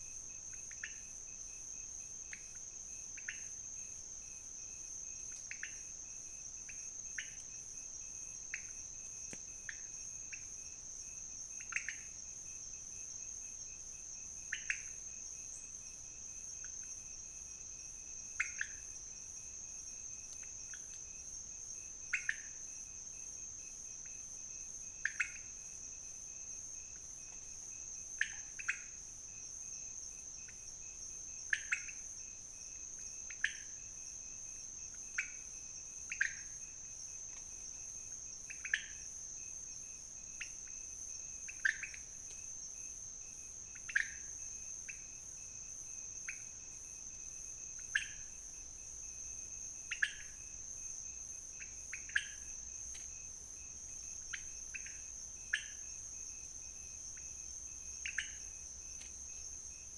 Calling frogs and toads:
Leptodactylus podicipinus
Cerrado, Brazil, 4:30am

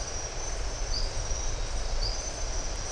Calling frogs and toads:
Adenomera marmorata, Leptodactylus notoaktites
Brazil, 6:30pm

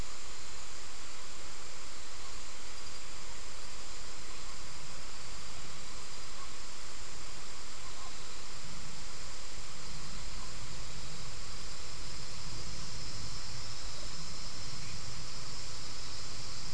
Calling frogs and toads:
none
Brazil, 5:45pm

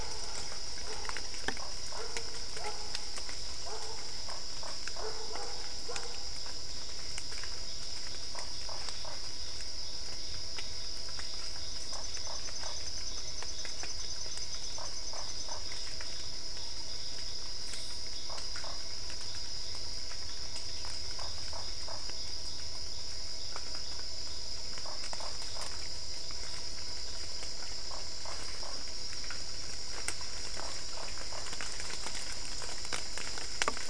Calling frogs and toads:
Dendropsophus cruzi, Boana lundii
Cerrado, Brazil, 9:30pm

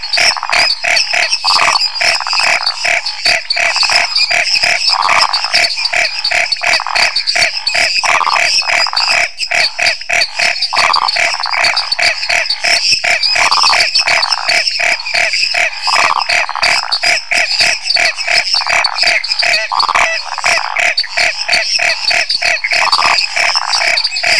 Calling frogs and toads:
Boana raniceps, Dendropsophus minutus, Dendropsophus nanus, Phyllomedusa sauvagii, Scinax fuscovarius
Brazil, 9:30pm

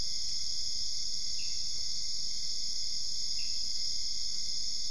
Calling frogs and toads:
Pithecopus azureus
Brazil, 2:30am

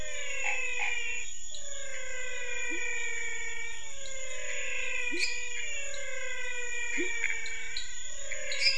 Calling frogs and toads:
Physalaemus albonotatus, Boana raniceps, Leptodactylus labyrinthicus, Pithecopus azureus, Dendropsophus minutus, Dendropsophus nanus
Brazil, ~8pm

